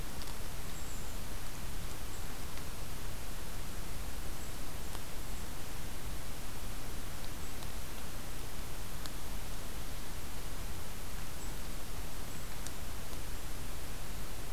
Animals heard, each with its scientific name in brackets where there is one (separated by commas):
Golden-crowned Kinglet (Regulus satrapa)